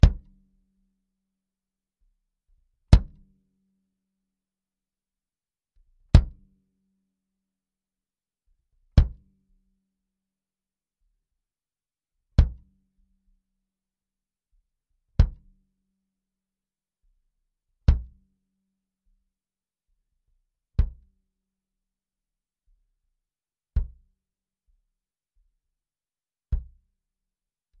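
A bass drum is playing. 0.0 - 0.3
A slow, steady rhythm of a bass drum gradually decreases in volume. 0.0 - 27.8
A bass drum is playing. 2.8 - 3.2
A bass drum is playing. 6.1 - 6.4
A bass drum is playing. 8.9 - 9.2
A bass drum is playing. 12.3 - 12.6
A bass drum is playing. 15.2 - 15.5
A bass drum is playing. 17.8 - 18.1
A bass drum is played quietly. 20.7 - 21.0
A bass drum is played quietly. 23.7 - 24.0
A bass drum is played quietly. 26.5 - 26.8

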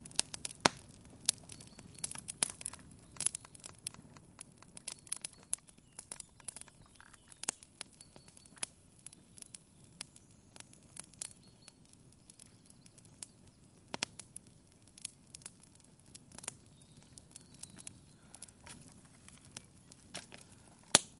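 Crackling fire sounds. 0.0 - 21.2

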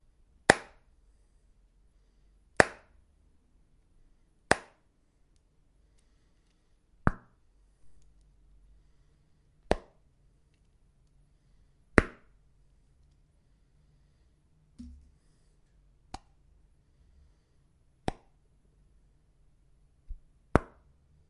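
A plastic box is being flicked. 0.4 - 0.7
A plastic box is being flicked. 2.5 - 2.8
A plastic box is being flicked. 4.4 - 4.7
A plastic box is being flicked. 7.0 - 7.4
A plastic box is being flicked. 9.7 - 9.8
A plastic box is being flicked. 11.9 - 12.1
A quiet tap on a plastic surface. 14.8 - 15.0
A plastic box is being flicked. 16.0 - 16.2
A plastic box is being flicked. 18.0 - 18.2
A plastic box is being flicked. 20.5 - 20.7

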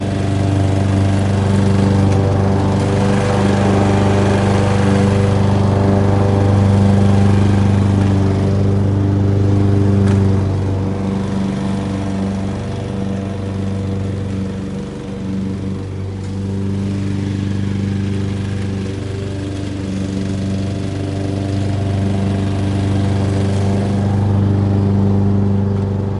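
A lawn mower hums steadily. 0.1 - 26.2

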